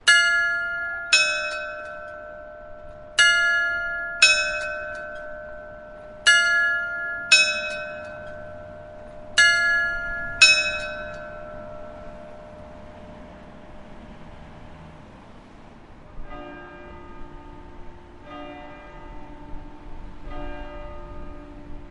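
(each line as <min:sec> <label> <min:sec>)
0:00.0 Two bells ring four times. 0:13.3
0:00.0 Light distant urban traffic. 0:21.9
0:16.1 A distant church bell rings three times, spaced out. 0:21.9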